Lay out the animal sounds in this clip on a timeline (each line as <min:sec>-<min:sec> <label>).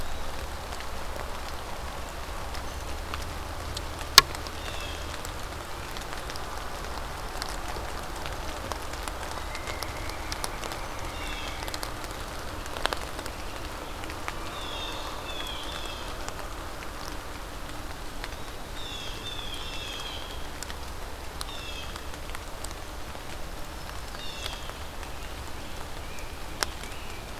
0:04.5-0:05.2 Blue Jay (Cyanocitta cristata)
0:09.4-0:11.6 Pileated Woodpecker (Dryocopus pileatus)
0:10.9-0:11.6 Blue Jay (Cyanocitta cristata)
0:14.4-0:16.4 Blue Jay (Cyanocitta cristata)
0:17.6-0:18.6 Eastern Wood-Pewee (Contopus virens)
0:18.6-0:25.0 Blue Jay (Cyanocitta cristata)
0:23.6-0:24.7 Black-throated Green Warbler (Setophaga virens)
0:25.0-0:27.4 Rose-breasted Grosbeak (Pheucticus ludovicianus)